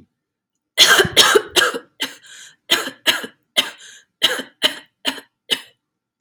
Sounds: Cough